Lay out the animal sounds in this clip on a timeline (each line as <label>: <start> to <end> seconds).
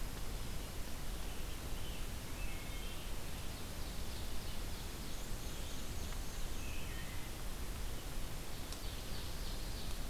American Robin (Turdus migratorius): 0.7 to 3.4 seconds
Wood Thrush (Hylocichla mustelina): 2.2 to 3.1 seconds
Ovenbird (Seiurus aurocapilla): 3.0 to 6.0 seconds
Black-and-white Warbler (Mniotilta varia): 4.8 to 6.8 seconds
Wood Thrush (Hylocichla mustelina): 6.5 to 7.4 seconds
Ovenbird (Seiurus aurocapilla): 8.4 to 10.1 seconds